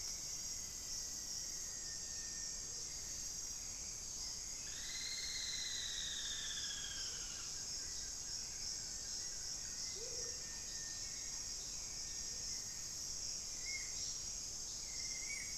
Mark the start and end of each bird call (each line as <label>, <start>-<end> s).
Rufous-fronted Antthrush (Formicarius rufifrons), 0.0-2.8 s
Amazonian Motmot (Momotus momota), 0.0-15.6 s
Hauxwell's Thrush (Turdus hauxwelli), 0.0-15.6 s
Plain-brown Woodcreeper (Dendrocincla fuliginosa), 4.4-7.6 s
Blue-crowned Trogon (Trogon curucui), 6.7-10.1 s
Spot-winged Antshrike (Pygiptila stellaris), 13.2-15.6 s